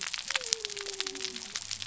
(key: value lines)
label: biophony
recorder: SoundTrap 300